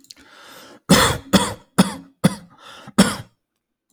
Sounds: Cough